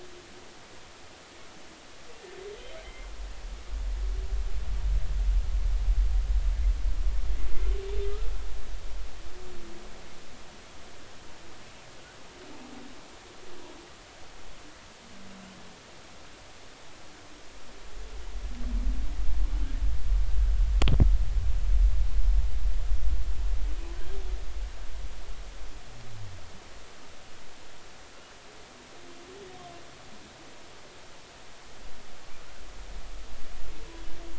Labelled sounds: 2.8	3.1	humpback whale, 2.0 to 2.2 kHz

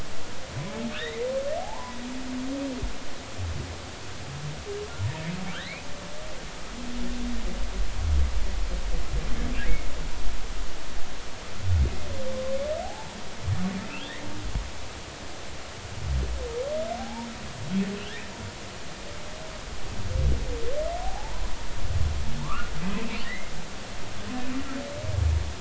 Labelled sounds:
0.9	1.3	humpback whale, 1.7 to 2.2 kHz
1.6	2.0	humpback whale, 0.80 to 1.1 kHz
5.5	5.9	humpback whale, 1.3 to 2.6 kHz
12.8	13.2	humpback whale, 0.80 to 0.99 kHz
13.9	14.1	humpback whale, 2.3 to 3.0 kHz
17.0	17.3	humpback whale, 0.80 to 0.99 kHz
21.0	21.4	humpback whale, 0.80 to 1.1 kHz
22.4	23.5	humpback whale, 0.86 to 2.2 kHz

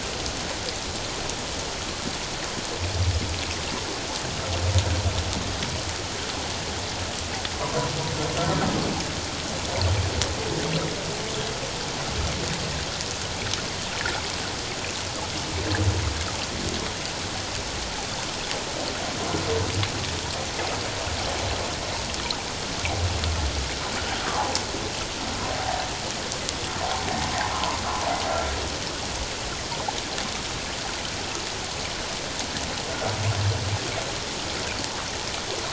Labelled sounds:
8.4	8.7	humpback whale, 1.3 to 1.5 kHz
24.3	24.6	humpback whale, 0.78 to 1.2 kHz
27.5	27.8	humpback whale, 0.91 to 1.1 kHz

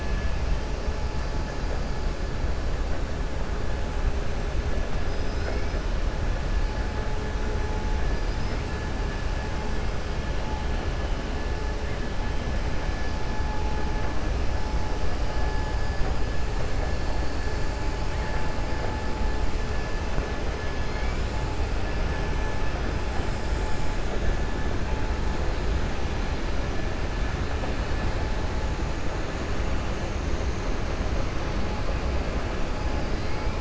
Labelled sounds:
5.0	5.8	killer whale, 3.9 to 6.1 kHz
8.1	8.6	killer whale, 4.5 to 5.8 kHz

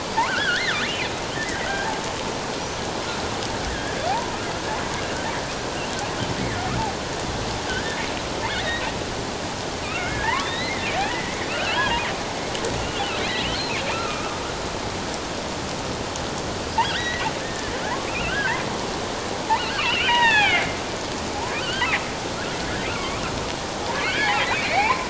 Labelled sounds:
0.3	0.9	killer whale, offshore, 1.2 to 2.2 kHz
1.4	1.9	killer whale, offshore, 1.5 to 2.1 kHz
3.7	4.3	killer whale, offshore, 0.78 to 1.9 kHz
7.7	8.0	killer whale, offshore, 1.4 to 1.8 kHz
8.6	8.9	killer whale, offshore, 1.7 to 4.1 kHz
9.8	12.0	killer whale, offshore, 0.84 to 4.2 kHz
13.2	13.5	killer whale, offshore, 3.6 to 4.1 kHz
13.9	14.4	killer whale, offshore, 1.2 to 2.7 kHz
16.5	18.5	killer whale, offshore, 0.81 to 5.1 kHz
19.6	20.8	killer whale, offshore, 0.78 to 4.5 kHz
21.5	21.9	killer whale, offshore, 1.2 to 4.8 kHz
22.9	25.0	killer whale, offshore, 0.78 to 3.4 kHz

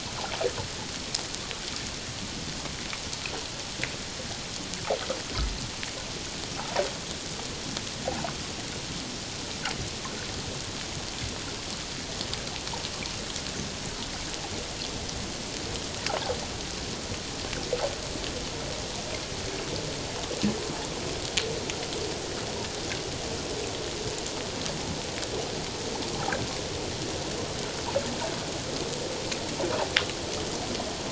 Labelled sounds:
8.0	8.3	humpback whale, 0.78 to 1.1 kHz

